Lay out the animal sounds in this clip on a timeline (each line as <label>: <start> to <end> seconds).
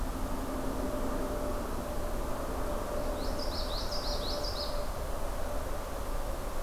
Common Yellowthroat (Geothlypis trichas): 3.2 to 4.9 seconds